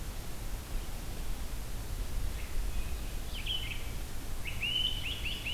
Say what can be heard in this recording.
Red-eyed Vireo, Great Crested Flycatcher